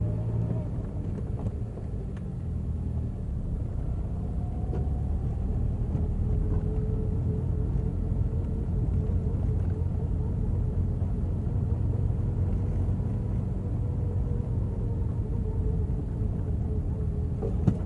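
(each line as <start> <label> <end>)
0.0 A low, continuous humming sound from an engine. 17.9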